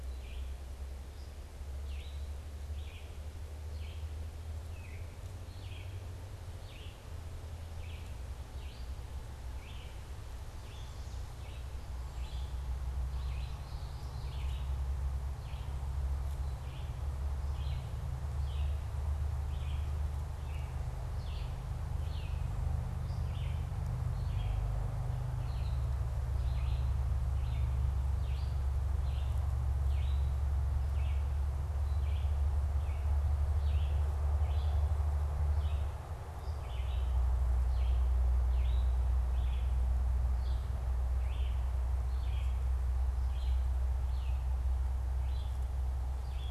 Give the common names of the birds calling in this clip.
Red-eyed Vireo, Common Yellowthroat